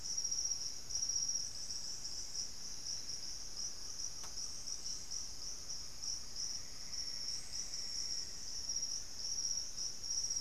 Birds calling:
Plumbeous Antbird (Myrmelastes hyperythrus), Great Antshrike (Taraba major)

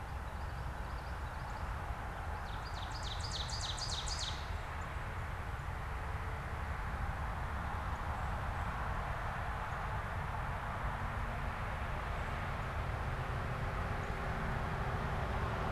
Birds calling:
Common Yellowthroat (Geothlypis trichas), Northern Cardinal (Cardinalis cardinalis), Ovenbird (Seiurus aurocapilla)

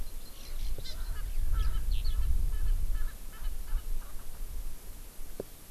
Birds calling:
Erckel's Francolin (Pternistis erckelii), Hawaii Amakihi (Chlorodrepanis virens), Eurasian Skylark (Alauda arvensis)

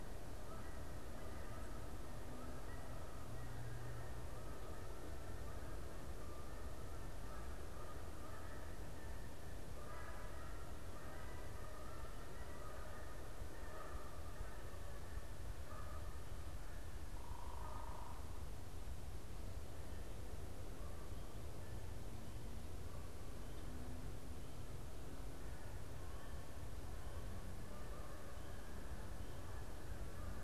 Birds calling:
Canada Goose (Branta canadensis), unidentified bird

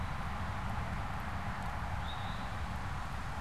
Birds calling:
Eastern Towhee (Pipilo erythrophthalmus)

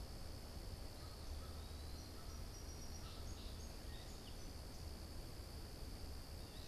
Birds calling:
Song Sparrow (Melospiza melodia), Blue Jay (Cyanocitta cristata)

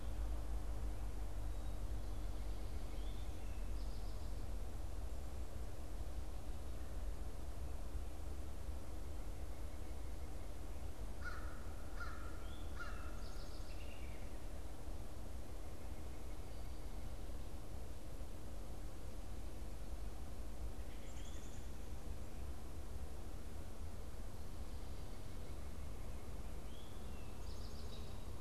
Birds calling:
Black-capped Chickadee (Poecile atricapillus), American Robin (Turdus migratorius), Eastern Towhee (Pipilo erythrophthalmus), American Crow (Corvus brachyrhynchos)

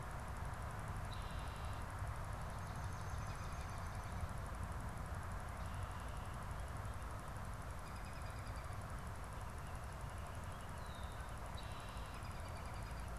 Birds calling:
American Robin (Turdus migratorius), Swamp Sparrow (Melospiza georgiana), Red-winged Blackbird (Agelaius phoeniceus)

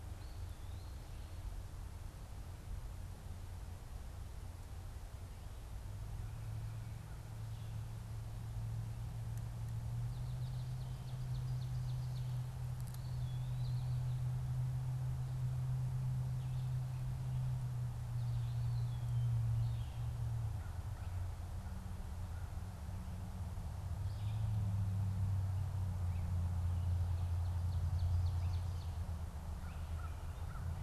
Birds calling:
Eastern Wood-Pewee (Contopus virens), Ovenbird (Seiurus aurocapilla), American Crow (Corvus brachyrhynchos)

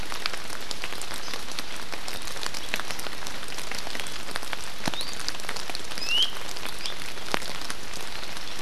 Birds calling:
Iiwi (Drepanis coccinea)

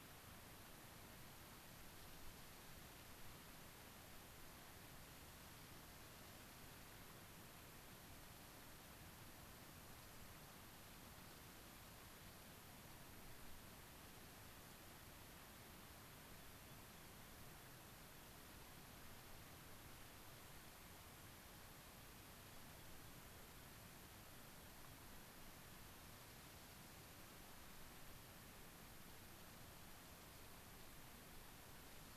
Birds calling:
Rock Wren (Salpinctes obsoletus)

